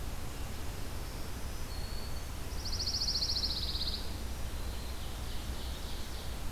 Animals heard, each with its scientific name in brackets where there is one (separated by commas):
Black-throated Green Warbler (Setophaga virens), Pine Warbler (Setophaga pinus), Ovenbird (Seiurus aurocapilla)